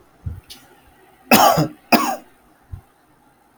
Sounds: Cough